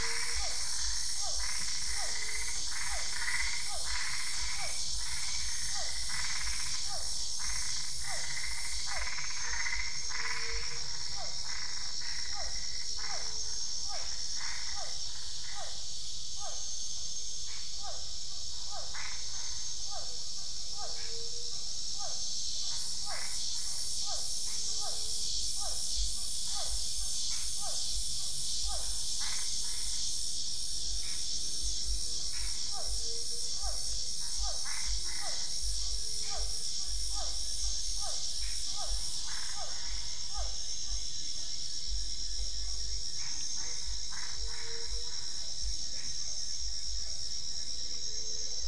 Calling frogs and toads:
Boana albopunctata, Physalaemus cuvieri, Pithecopus azureus
Cerrado, Brazil, 7:00pm

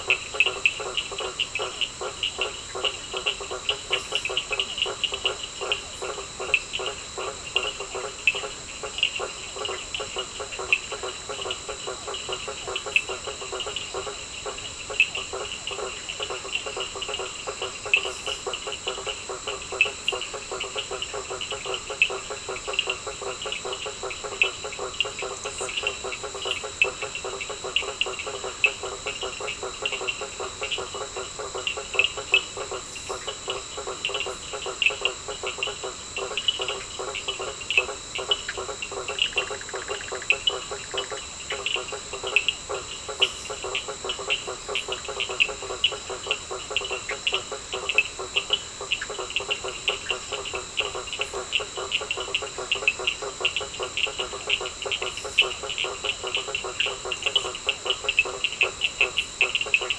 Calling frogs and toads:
blacksmith tree frog, Cochran's lime tree frog, Bischoff's tree frog
Atlantic Forest, Brazil, 9:00pm

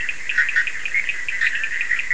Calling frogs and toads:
Bischoff's tree frog, Cochran's lime tree frog
Atlantic Forest, Brazil, 3:00am

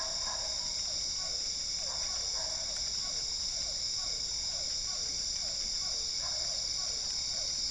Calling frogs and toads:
Physalaemus cuvieri
Cerrado, Brazil, 9:00pm

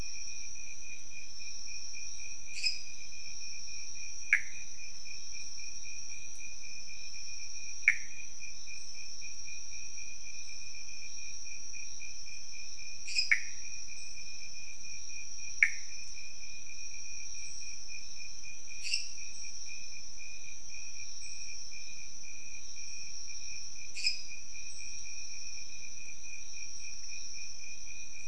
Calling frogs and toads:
lesser tree frog, Pithecopus azureus
Cerrado, Brazil, 2:15am

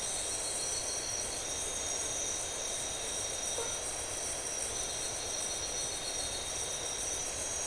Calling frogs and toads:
blacksmith tree frog
Atlantic Forest, Brazil, 2:00am

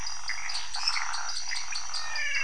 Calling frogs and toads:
dwarf tree frog, pointedbelly frog, waxy monkey tree frog
Cerrado, Brazil, 1:45am

